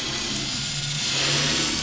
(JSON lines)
{"label": "anthrophony, boat engine", "recorder": "SoundTrap 500"}